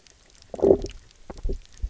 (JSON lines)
{"label": "biophony, low growl", "recorder": "SoundTrap 300"}